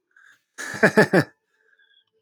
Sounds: Laughter